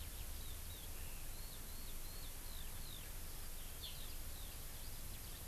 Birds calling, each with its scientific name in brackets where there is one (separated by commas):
Eurasian Skylark (Alauda arvensis)